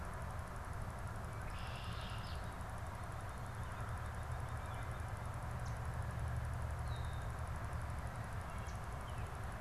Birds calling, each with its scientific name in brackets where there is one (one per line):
Red-winged Blackbird (Agelaius phoeniceus)
Yellow Warbler (Setophaga petechia)